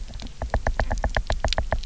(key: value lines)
label: biophony, knock
recorder: SoundTrap 300